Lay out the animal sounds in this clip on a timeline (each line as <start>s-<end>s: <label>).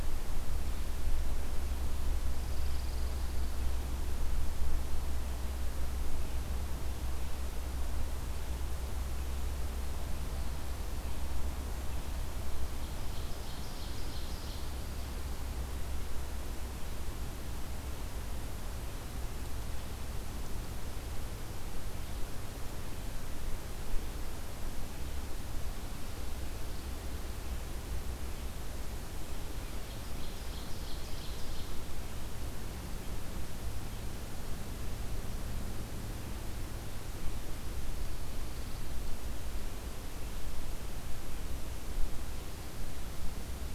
2.1s-4.0s: Pine Warbler (Setophaga pinus)
12.5s-15.8s: Ovenbird (Seiurus aurocapilla)
29.7s-32.2s: Ovenbird (Seiurus aurocapilla)